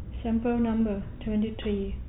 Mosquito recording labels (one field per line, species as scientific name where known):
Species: no mosquito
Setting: cup